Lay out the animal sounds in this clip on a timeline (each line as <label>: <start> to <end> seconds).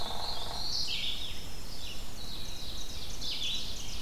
Tennessee Warbler (Leiothlypis peregrina): 0.0 to 0.7 seconds
Hairy Woodpecker (Dryobates villosus): 0.0 to 0.7 seconds
Black-throated Blue Warbler (Setophaga caerulescens): 0.0 to 1.4 seconds
Red-eyed Vireo (Vireo olivaceus): 0.0 to 4.0 seconds
Winter Wren (Troglodytes hiemalis): 0.0 to 4.0 seconds
Ovenbird (Seiurus aurocapilla): 1.7 to 4.0 seconds